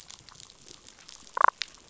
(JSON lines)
{"label": "biophony, damselfish", "recorder": "SoundTrap 500"}